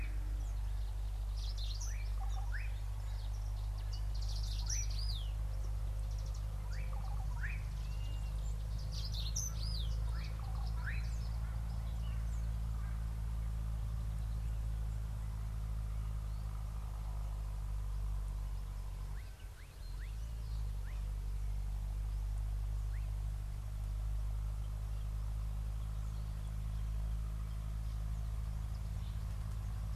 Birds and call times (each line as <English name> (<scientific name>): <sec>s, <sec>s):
Brimstone Canary (Crithagra sulphurata): 1.6s, 9.1s
Slate-colored Boubou (Laniarius funebris): 2.5s, 7.3s